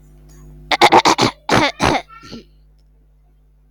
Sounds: Throat clearing